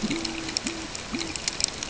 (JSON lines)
{"label": "ambient", "recorder": "HydroMoth"}